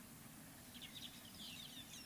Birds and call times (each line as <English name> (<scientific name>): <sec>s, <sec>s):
White-headed Buffalo-Weaver (Dinemellia dinemelli): 1.5s